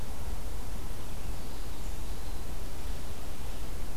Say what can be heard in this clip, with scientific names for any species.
Contopus virens